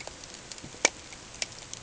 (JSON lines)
{"label": "ambient", "recorder": "HydroMoth"}